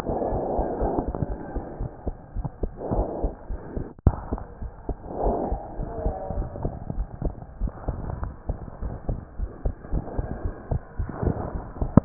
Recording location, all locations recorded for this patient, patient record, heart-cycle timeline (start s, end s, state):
pulmonary valve (PV)
aortic valve (AV)+pulmonary valve (PV)+tricuspid valve (TV)+mitral valve (MV)
#Age: Child
#Sex: Male
#Height: 121.0 cm
#Weight: 24.9 kg
#Pregnancy status: False
#Murmur: Absent
#Murmur locations: nan
#Most audible location: nan
#Systolic murmur timing: nan
#Systolic murmur shape: nan
#Systolic murmur grading: nan
#Systolic murmur pitch: nan
#Systolic murmur quality: nan
#Diastolic murmur timing: nan
#Diastolic murmur shape: nan
#Diastolic murmur grading: nan
#Diastolic murmur pitch: nan
#Diastolic murmur quality: nan
#Outcome: Normal
#Campaign: 2015 screening campaign
0.00	4.57	unannotated
4.57	4.70	S1
4.70	4.86	systole
4.86	4.96	S2
4.96	5.18	diastole
5.18	5.36	S1
5.36	5.50	systole
5.50	5.62	S2
5.62	5.76	diastole
5.76	5.90	S1
5.90	6.02	systole
6.02	6.16	S2
6.16	6.34	diastole
6.34	6.50	S1
6.50	6.62	systole
6.62	6.76	S2
6.76	6.94	diastole
6.94	7.08	S1
7.08	7.22	systole
7.22	7.36	S2
7.36	7.60	diastole
7.60	7.72	S1
7.72	7.86	systole
7.86	8.02	S2
8.02	8.20	diastole
8.20	8.34	S1
8.34	8.48	systole
8.48	8.60	S2
8.60	8.82	diastole
8.82	8.94	S1
8.94	9.06	systole
9.06	9.22	S2
9.22	9.36	diastole
9.36	9.50	S1
9.50	9.64	systole
9.64	9.76	S2
9.76	9.92	diastole
9.92	10.06	S1
10.06	10.16	systole
10.16	10.28	S2
10.28	10.44	diastole
10.44	10.56	S1
10.56	10.70	systole
10.70	10.82	S2
10.82	12.05	unannotated